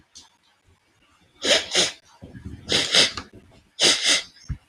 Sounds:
Sniff